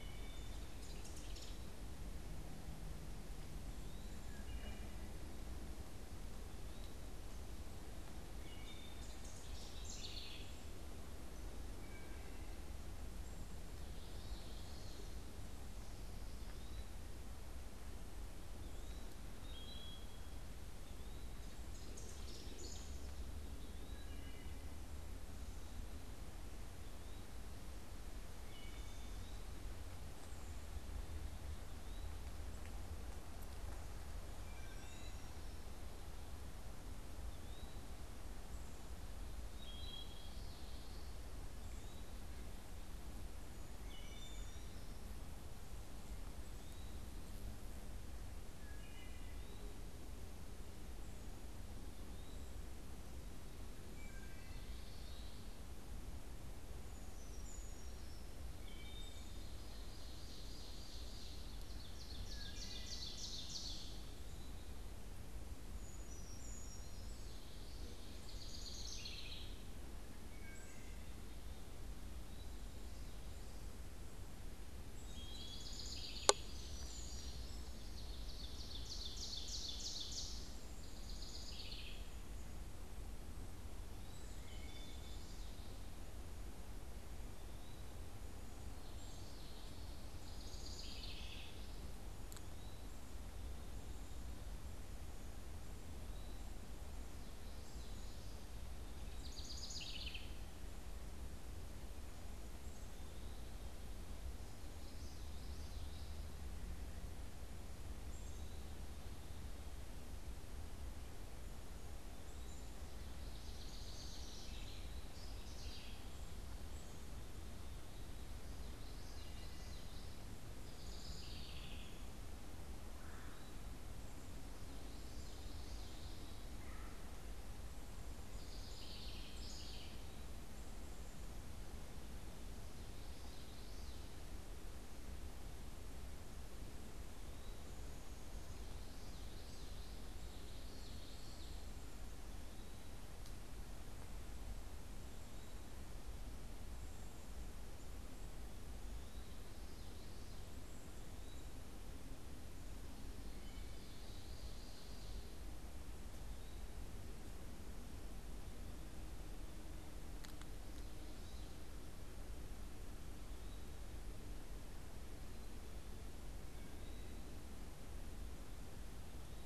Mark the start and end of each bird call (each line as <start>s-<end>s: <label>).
0.0s-0.8s: Wood Thrush (Hylocichla mustelina)
0.5s-1.8s: unidentified bird
3.6s-7.1s: Eastern Wood-Pewee (Contopus virens)
4.1s-5.2s: Wood Thrush (Hylocichla mustelina)
8.2s-12.6s: Wood Thrush (Hylocichla mustelina)
8.8s-10.6s: House Wren (Troglodytes aedon)
13.8s-15.3s: Common Yellowthroat (Geothlypis trichas)
16.2s-17.0s: Eastern Wood-Pewee (Contopus virens)
18.3s-29.7s: Eastern Wood-Pewee (Contopus virens)
19.3s-20.3s: Wood Thrush (Hylocichla mustelina)
21.4s-23.3s: House Wren (Troglodytes aedon)
23.8s-24.7s: Wood Thrush (Hylocichla mustelina)
28.3s-29.3s: Wood Thrush (Hylocichla mustelina)
31.5s-44.9s: Eastern Wood-Pewee (Contopus virens)
34.3s-35.5s: Wood Thrush (Hylocichla mustelina)
39.2s-40.5s: Wood Thrush (Hylocichla mustelina)
43.7s-44.9s: Wood Thrush (Hylocichla mustelina)
46.4s-55.4s: Eastern Wood-Pewee (Contopus virens)
48.5s-49.6s: Wood Thrush (Hylocichla mustelina)
53.8s-54.8s: Wood Thrush (Hylocichla mustelina)
56.7s-58.4s: Brown Creeper (Certhia americana)
58.5s-59.5s: Wood Thrush (Hylocichla mustelina)
59.5s-64.0s: Ovenbird (Seiurus aurocapilla)
62.2s-63.3s: Wood Thrush (Hylocichla mustelina)
64.0s-64.8s: Eastern Wood-Pewee (Contopus virens)
65.5s-67.3s: Brown Creeper (Certhia americana)
67.1s-68.4s: Common Yellowthroat (Geothlypis trichas)
67.9s-69.6s: House Wren (Troglodytes aedon)
70.0s-71.3s: Wood Thrush (Hylocichla mustelina)
71.7s-72.7s: Eastern Wood-Pewee (Contopus virens)
74.7s-75.9s: Wood Thrush (Hylocichla mustelina)
75.2s-76.5s: House Wren (Troglodytes aedon)
76.0s-77.7s: unidentified bird
77.4s-80.6s: Ovenbird (Seiurus aurocapilla)
80.3s-82.2s: House Wren (Troglodytes aedon)
84.4s-85.2s: Wood Thrush (Hylocichla mustelina)
87.2s-87.9s: Eastern Wood-Pewee (Contopus virens)
90.0s-91.7s: House Wren (Troglodytes aedon)
92.4s-96.7s: Eastern Wood-Pewee (Contopus virens)
99.1s-100.3s: House Wren (Troglodytes aedon)
104.6s-106.2s: Common Yellowthroat (Geothlypis trichas)
112.8s-116.1s: House Wren (Troglodytes aedon)
118.2s-120.3s: Common Yellowthroat (Geothlypis trichas)
120.4s-122.1s: House Wren (Troglodytes aedon)
122.9s-123.5s: Red-bellied Woodpecker (Melanerpes carolinus)
124.5s-126.3s: Common Yellowthroat (Geothlypis trichas)
126.5s-127.1s: Red-bellied Woodpecker (Melanerpes carolinus)
128.2s-130.2s: House Wren (Troglodytes aedon)
132.6s-134.1s: Common Yellowthroat (Geothlypis trichas)
138.5s-141.7s: Common Yellowthroat (Geothlypis trichas)
153.2s-154.0s: Wood Thrush (Hylocichla mustelina)
153.3s-155.2s: Ovenbird (Seiurus aurocapilla)
166.5s-167.3s: Wood Thrush (Hylocichla mustelina)